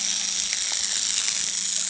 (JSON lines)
{"label": "anthrophony, boat engine", "recorder": "HydroMoth"}